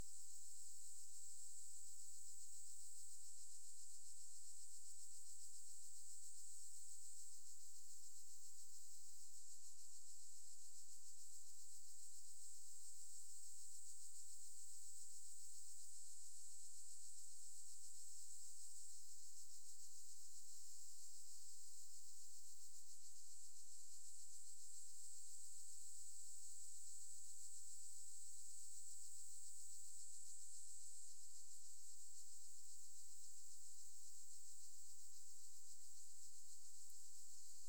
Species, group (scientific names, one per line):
Metaplastes ornatus
Orthoptera